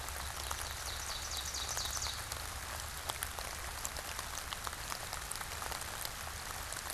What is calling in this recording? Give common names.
Ovenbird